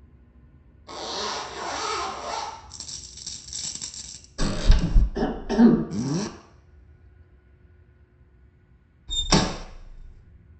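First at 0.86 seconds, you can hear a zipper. Then at 2.69 seconds, a coin drops. Next, at 4.38 seconds, a wooden door opens. Afterwards, at 5.14 seconds, someone coughs. Following that, at 5.89 seconds, a zipper is audible. Then at 9.07 seconds, a window closes.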